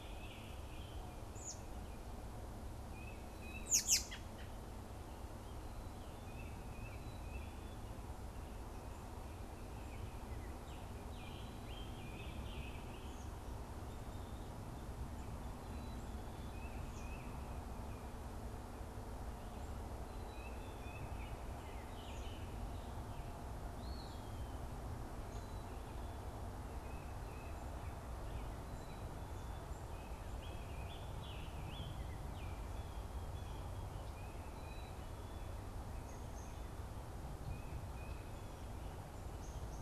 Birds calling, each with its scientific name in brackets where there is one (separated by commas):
American Robin (Turdus migratorius), Northern Cardinal (Cardinalis cardinalis), Eastern Wood-Pewee (Contopus virens), Tufted Titmouse (Baeolophus bicolor), Scarlet Tanager (Piranga olivacea), Baltimore Oriole (Icterus galbula)